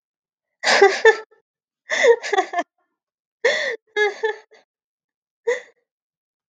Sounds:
Cough